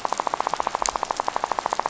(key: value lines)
label: biophony, rattle
recorder: SoundTrap 500